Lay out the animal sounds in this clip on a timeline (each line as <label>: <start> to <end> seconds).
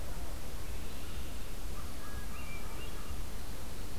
Red-winged Blackbird (Agelaius phoeniceus): 0.4 to 1.6 seconds
American Crow (Corvus brachyrhynchos): 1.7 to 3.3 seconds
Hermit Thrush (Catharus guttatus): 2.2 to 3.1 seconds